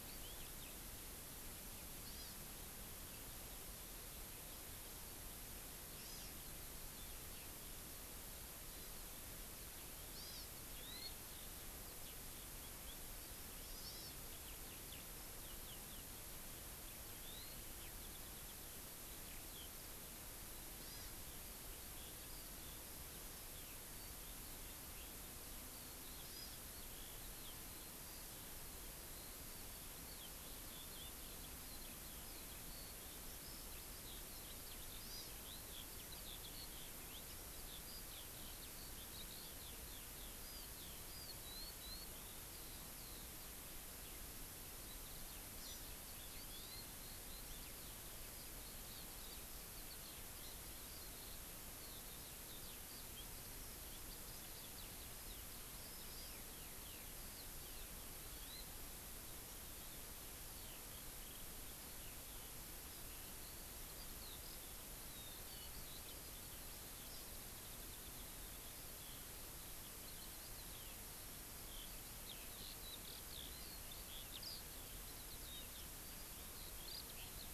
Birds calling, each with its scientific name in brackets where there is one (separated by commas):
Hawaii Amakihi (Chlorodrepanis virens), Eurasian Skylark (Alauda arvensis)